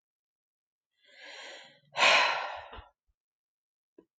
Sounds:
Sigh